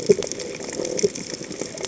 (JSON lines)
{"label": "biophony", "recorder": "HydroMoth"}